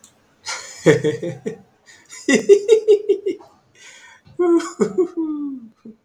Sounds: Laughter